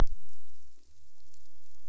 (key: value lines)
label: biophony
recorder: SoundTrap 300